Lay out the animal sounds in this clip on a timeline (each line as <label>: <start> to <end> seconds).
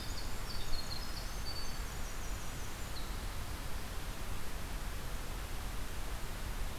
Winter Wren (Troglodytes hiemalis): 0.0 to 3.2 seconds